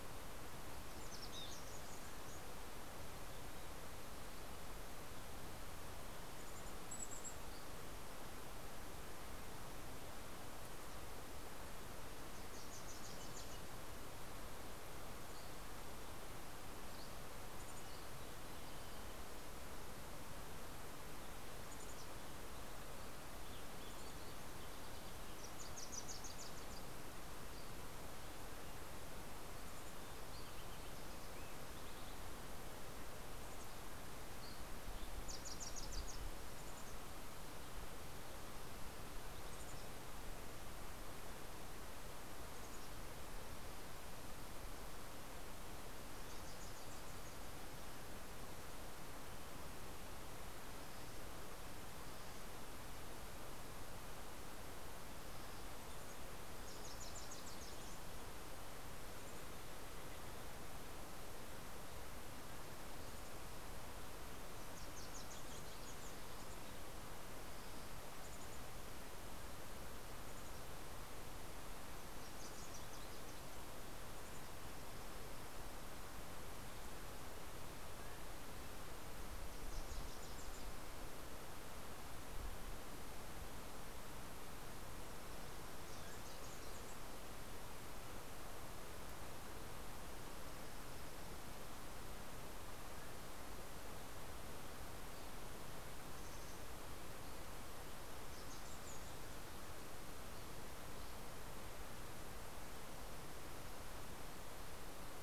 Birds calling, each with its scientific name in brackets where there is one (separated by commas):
Fox Sparrow (Passerella iliaca), Dusky Flycatcher (Empidonax oberholseri), Mountain Chickadee (Poecile gambeli), Dark-eyed Junco (Junco hyemalis), Wilson's Warbler (Cardellina pusilla)